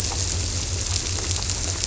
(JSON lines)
{"label": "biophony", "recorder": "SoundTrap 300"}